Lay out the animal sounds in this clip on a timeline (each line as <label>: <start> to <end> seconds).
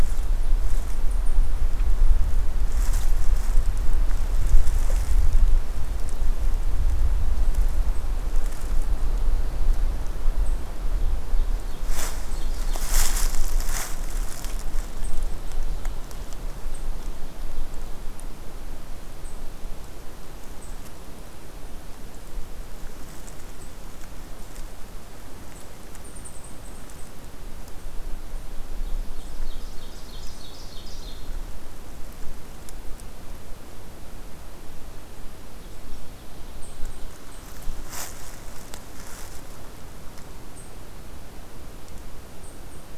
Ovenbird (Seiurus aurocapilla): 11.2 to 13.0 seconds
Eastern Chipmunk (Tamias striatus): 25.9 to 27.2 seconds
Ovenbird (Seiurus aurocapilla): 28.7 to 31.7 seconds
Ovenbird (Seiurus aurocapilla): 35.5 to 38.4 seconds